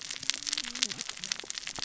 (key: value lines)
label: biophony, cascading saw
recorder: SoundTrap 600 or HydroMoth